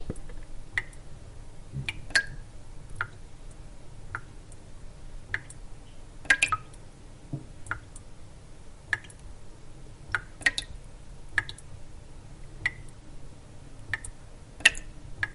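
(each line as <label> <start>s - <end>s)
Prolonged background noise indoors. 0.0s - 15.3s
A drop falls into the sink. 0.8s - 0.8s
Objects drop into the sink. 1.8s - 2.4s
A drop falls into the sink. 3.0s - 3.1s
A drop falls into the sink. 4.1s - 4.2s
A drop falls into the sink. 5.3s - 5.4s
Objects drop into the sink. 6.2s - 6.6s
Wood creaking. 7.3s - 7.4s
A drop falls into the sink. 7.7s - 7.8s
A drop falls into the sink. 8.9s - 9.1s
Objects drop into the sink. 10.1s - 10.7s
Objects drop into the sink. 11.4s - 11.6s
A drop falls into the sink. 12.6s - 12.9s
A drop falls into the sink. 13.9s - 15.3s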